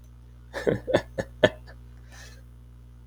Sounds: Laughter